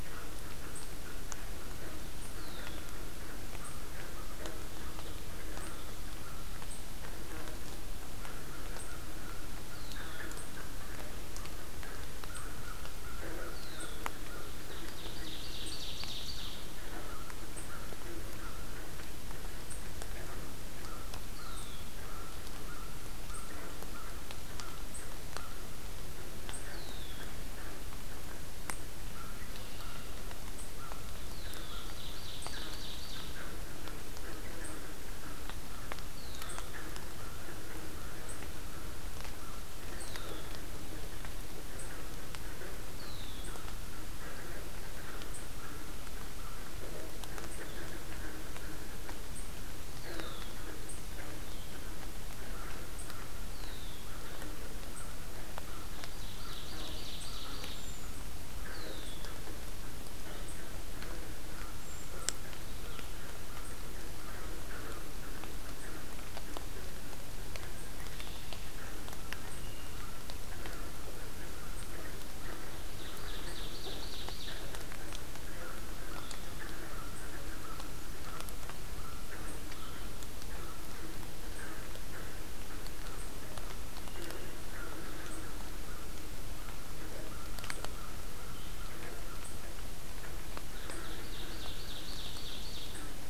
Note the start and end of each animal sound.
0.0s-6.8s: American Crow (Corvus brachyrhynchos)
2.3s-2.9s: Red-winged Blackbird (Agelaius phoeniceus)
8.0s-25.7s: American Crow (Corvus brachyrhynchos)
9.7s-10.4s: Red-winged Blackbird (Agelaius phoeniceus)
13.4s-14.2s: Red-winged Blackbird (Agelaius phoeniceus)
14.5s-16.6s: Ovenbird (Seiurus aurocapilla)
21.2s-22.0s: Red-winged Blackbird (Agelaius phoeniceus)
26.6s-27.4s: Red-winged Blackbird (Agelaius phoeniceus)
29.1s-40.5s: American Crow (Corvus brachyrhynchos)
29.5s-30.3s: Red-winged Blackbird (Agelaius phoeniceus)
31.2s-31.9s: Red-winged Blackbird (Agelaius phoeniceus)
31.7s-33.4s: Ovenbird (Seiurus aurocapilla)
36.1s-36.8s: Red-winged Blackbird (Agelaius phoeniceus)
39.9s-40.6s: Red-winged Blackbird (Agelaius phoeniceus)
41.6s-49.3s: American Crow (Corvus brachyrhynchos)
42.9s-43.5s: Red-winged Blackbird (Agelaius phoeniceus)
50.0s-50.6s: Red-winged Blackbird (Agelaius phoeniceus)
50.9s-66.3s: American Crow (Corvus brachyrhynchos)
53.4s-54.3s: Red-winged Blackbird (Agelaius phoeniceus)
55.9s-57.8s: Ovenbird (Seiurus aurocapilla)
58.7s-59.5s: Red-winged Blackbird (Agelaius phoeniceus)
67.8s-68.6s: Red-winged Blackbird (Agelaius phoeniceus)
69.4s-70.1s: Red-winged Blackbird (Agelaius phoeniceus)
70.3s-89.7s: American Crow (Corvus brachyrhynchos)
72.9s-74.7s: Ovenbird (Seiurus aurocapilla)
88.3s-93.3s: Blue-headed Vireo (Vireo solitarius)
90.8s-93.0s: Ovenbird (Seiurus aurocapilla)

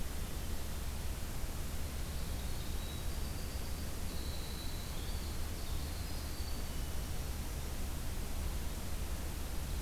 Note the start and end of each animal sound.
1.7s-7.7s: Winter Wren (Troglodytes hiemalis)

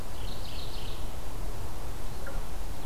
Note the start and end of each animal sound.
0.0s-1.3s: Mourning Warbler (Geothlypis philadelphia)

